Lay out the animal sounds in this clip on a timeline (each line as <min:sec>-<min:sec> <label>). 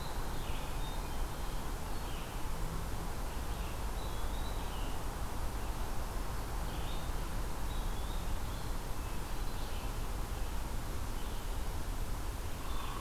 0:00.0-0:13.0 Red-eyed Vireo (Vireo olivaceus)
0:00.7-0:01.4 Hermit Thrush (Catharus guttatus)
0:03.8-0:04.7 Eastern Wood-Pewee (Contopus virens)
0:07.4-0:08.5 Eastern Wood-Pewee (Contopus virens)